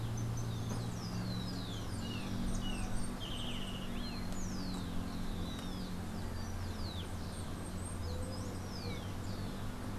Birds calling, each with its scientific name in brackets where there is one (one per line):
Golden-faced Tyrannulet (Zimmerius chrysops)
Rufous-collared Sparrow (Zonotrichia capensis)